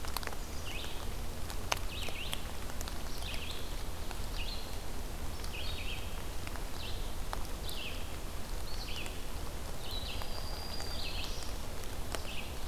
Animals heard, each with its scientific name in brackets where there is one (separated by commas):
Red-eyed Vireo (Vireo olivaceus), Black-throated Green Warbler (Setophaga virens)